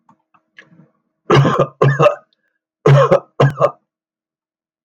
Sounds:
Cough